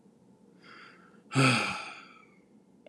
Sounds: Sigh